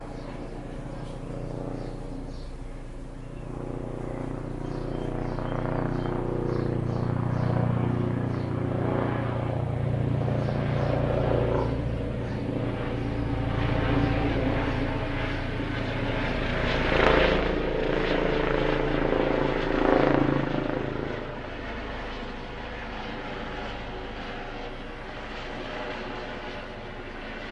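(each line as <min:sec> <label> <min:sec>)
0:03.3 A helicopter flies overhead in the distance. 0:21.5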